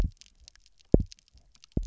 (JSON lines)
{"label": "biophony, double pulse", "recorder": "SoundTrap 300"}